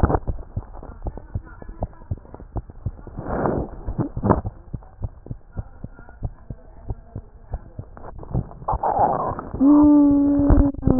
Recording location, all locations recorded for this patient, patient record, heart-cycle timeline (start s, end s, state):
tricuspid valve (TV)
aortic valve (AV)+pulmonary valve (PV)+tricuspid valve (TV)+mitral valve (MV)
#Age: Child
#Sex: Female
#Height: 76.0 cm
#Weight: 9.05 kg
#Pregnancy status: False
#Murmur: Absent
#Murmur locations: nan
#Most audible location: nan
#Systolic murmur timing: nan
#Systolic murmur shape: nan
#Systolic murmur grading: nan
#Systolic murmur pitch: nan
#Systolic murmur quality: nan
#Diastolic murmur timing: nan
#Diastolic murmur shape: nan
#Diastolic murmur grading: nan
#Diastolic murmur pitch: nan
#Diastolic murmur quality: nan
#Outcome: Abnormal
#Campaign: 2015 screening campaign
0.00	0.71	unannotated
0.71	1.03	diastole
1.03	1.17	S1
1.17	1.34	systole
1.34	1.48	S2
1.48	1.74	diastole
1.74	1.88	S1
1.88	2.04	systole
2.04	2.16	S2
2.16	2.52	diastole
2.52	2.62	S1
2.62	2.82	systole
2.82	2.94	S2
2.94	3.16	diastole
3.16	3.84	unannotated
3.84	4.00	S1
4.00	4.12	systole
4.12	4.22	S2
4.22	4.42	diastole
4.42	4.54	S1
4.54	4.70	systole
4.70	4.82	S2
4.82	5.00	diastole
5.00	5.14	S1
5.14	5.28	systole
5.28	5.38	S2
5.38	5.55	diastole
5.55	5.68	S1
5.68	5.79	systole
5.79	5.89	S2
5.89	6.20	diastole
6.20	6.34	S1
6.34	6.48	systole
6.48	6.57	S2
6.57	6.86	diastole
6.86	6.97	S1
6.97	7.15	systole
7.15	7.25	S2
7.25	7.52	diastole
7.52	7.61	S1
7.61	7.77	systole
7.77	7.90	S2
7.90	10.99	unannotated